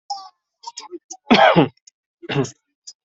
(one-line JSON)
{"expert_labels": [{"quality": "ok", "cough_type": "dry", "dyspnea": false, "wheezing": false, "stridor": false, "choking": false, "congestion": false, "nothing": true, "diagnosis": "COVID-19", "severity": "mild"}], "age": 34, "gender": "male", "respiratory_condition": false, "fever_muscle_pain": false, "status": "symptomatic"}